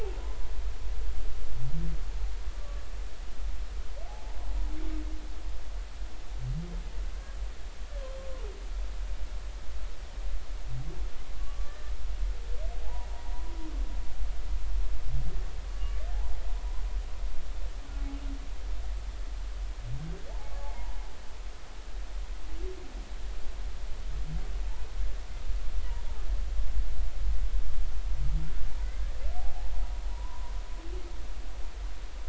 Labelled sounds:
2.6	2.8	humpback whale, 1.1 to 1.2 kHz
4.1	4.4	humpback whale, 0.80 to 0.99 kHz
11.4	11.9	humpback whale, 1.1 to 1.9 kHz
12.8	13.1	humpback whale, 0.80 to 1.0 kHz
15.7	16.0	humpback whale, 1.1 to 1.2 kHz
20.3	21.0	humpback whale, 0.80 to 1.2 kHz
30.1	30.5	humpback whale, 0.90 to 1.1 kHz

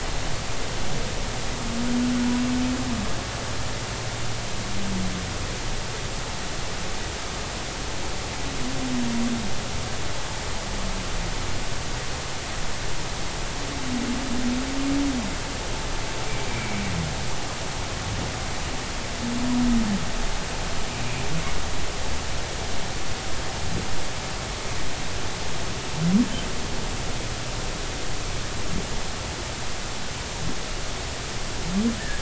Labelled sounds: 16.5	16.8	humpback whale, 2.1 to 2.4 kHz

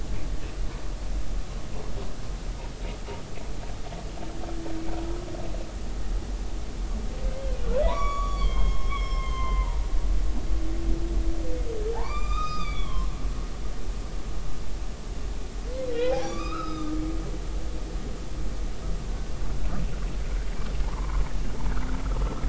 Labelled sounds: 7.8	9.9	humpback whale, 0.90 to 6.9 kHz
11.9	13.1	humpback whale, 0.80 to 7.4 kHz
15.9	16.9	humpback whale, 0.80 to 5.1 kHz
20.8	21.2	humpback whale, 0.80 to 1.2 kHz

